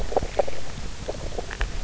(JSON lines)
{"label": "biophony, grazing", "recorder": "SoundTrap 300"}